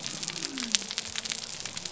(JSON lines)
{"label": "biophony", "recorder": "SoundTrap 300"}